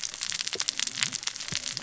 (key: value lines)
label: biophony, cascading saw
recorder: SoundTrap 600 or HydroMoth